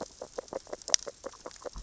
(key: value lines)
label: biophony, grazing
recorder: SoundTrap 600 or HydroMoth